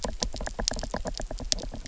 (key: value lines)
label: biophony, knock
recorder: SoundTrap 300